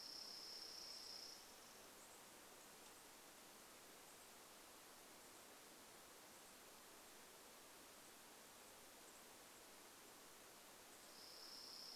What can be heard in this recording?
Chipping Sparrow song, unidentified bird chip note